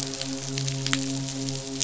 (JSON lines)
{"label": "biophony, midshipman", "recorder": "SoundTrap 500"}